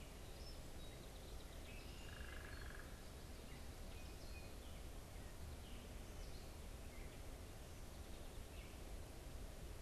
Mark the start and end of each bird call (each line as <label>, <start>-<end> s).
Gray Catbird (Dumetella carolinensis), 0.0-9.8 s
Red-winged Blackbird (Agelaius phoeniceus), 1.7-2.9 s
unidentified bird, 2.0-3.0 s